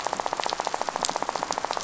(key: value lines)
label: biophony, rattle
recorder: SoundTrap 500